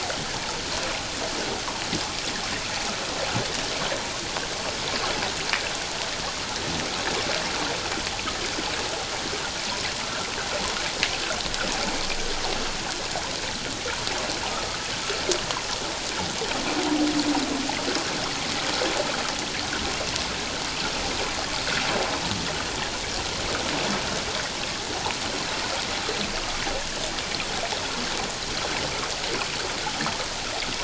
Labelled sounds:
10.0	10.3	water noise, 1.3 to 1.4 kHz

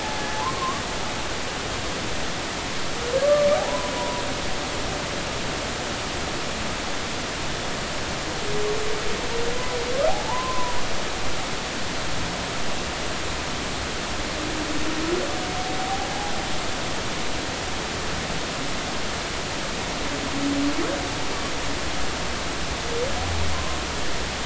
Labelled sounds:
1.4	1.8	humpback whale, 0.83 to 1.2 kHz
3.6	4.2	humpback whale, 0.80 to 1.1 kHz
9.5	9.8	humpback whale, 0.96 to 1.1 kHz
10.1	10.8	humpback whale, 0.80 to 1.1 kHz
23.5	23.8	humpback whale, 0.96 to 1.1 kHz

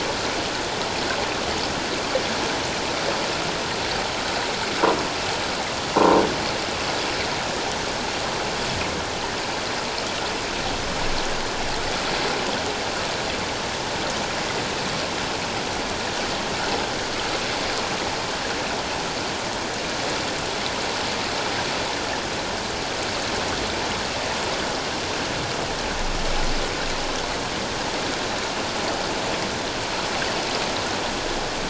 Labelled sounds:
6.0	6.2	croaking sound likely from a nearby submerged object, 0.88 to 1.1 kHz

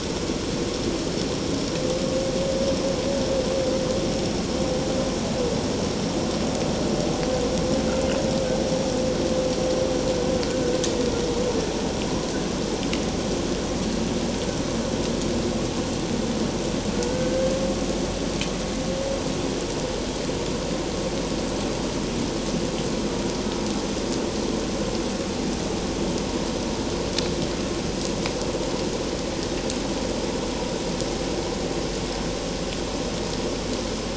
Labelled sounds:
17.1	17.5	humpback whale, 1.5 to 1.6 kHz

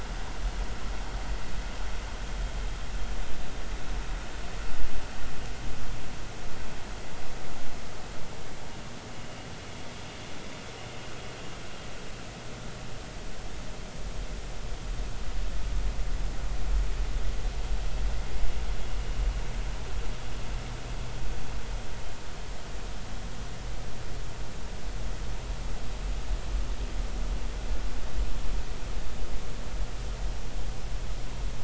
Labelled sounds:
9.2	9.5	vessel noise, 2.7 to 2.9 kHz

